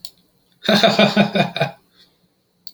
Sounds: Laughter